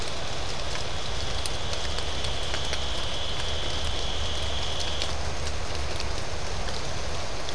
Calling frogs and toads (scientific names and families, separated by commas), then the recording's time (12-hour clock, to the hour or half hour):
none
6:30pm